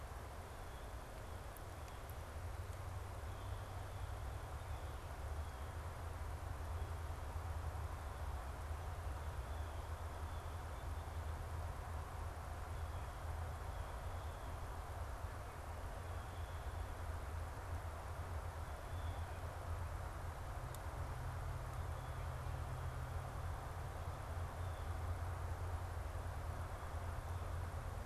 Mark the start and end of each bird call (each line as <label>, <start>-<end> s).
Blue Jay (Cyanocitta cristata), 0.0-6.1 s
Blue Jay (Cyanocitta cristata), 9.3-19.6 s